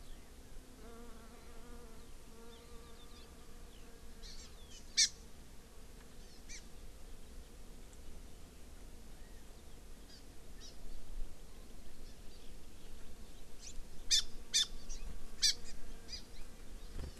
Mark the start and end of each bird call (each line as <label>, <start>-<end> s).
Eurasian Skylark (Alauda arvensis), 0.0-0.2 s
California Quail (Callipepla californica), 0.0-0.7 s
Hawaii Amakihi (Chlorodrepanis virens), 4.2-5.1 s
Hawaii Amakihi (Chlorodrepanis virens), 6.2-6.6 s
Hawaii Amakihi (Chlorodrepanis virens), 10.1-10.2 s
Hawaii Amakihi (Chlorodrepanis virens), 10.6-10.7 s
Hawaii Amakihi (Chlorodrepanis virens), 12.0-12.2 s
Hawaii Amakihi (Chlorodrepanis virens), 13.6-13.7 s
Hawaii Amakihi (Chlorodrepanis virens), 14.1-14.2 s
Hawaii Amakihi (Chlorodrepanis virens), 14.5-15.0 s
Hawaii Amakihi (Chlorodrepanis virens), 15.4-15.7 s
Hawaii Amakihi (Chlorodrepanis virens), 16.1-16.2 s
Hawaii Amakihi (Chlorodrepanis virens), 17.0-17.2 s